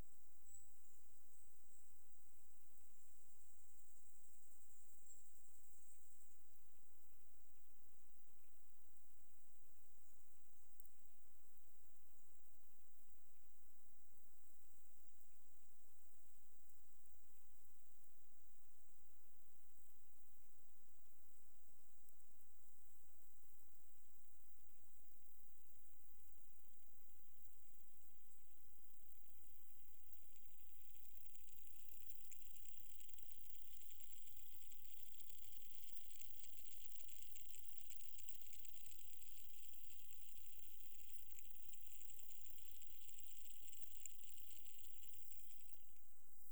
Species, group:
Conocephalus fuscus, Orthoptera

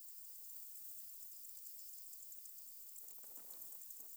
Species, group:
Decticus albifrons, Orthoptera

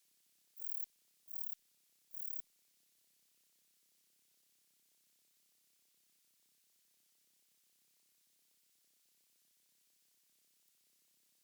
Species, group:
Rhacocleis buchichii, Orthoptera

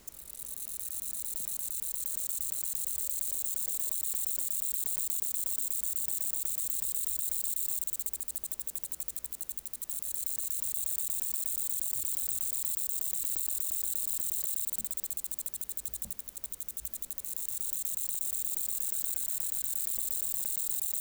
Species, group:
Conocephalus dorsalis, Orthoptera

